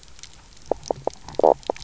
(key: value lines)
label: biophony, knock croak
recorder: SoundTrap 300